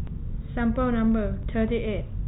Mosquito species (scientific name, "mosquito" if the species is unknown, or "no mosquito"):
no mosquito